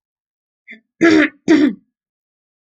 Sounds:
Throat clearing